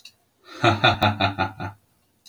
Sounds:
Laughter